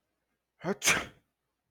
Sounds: Sneeze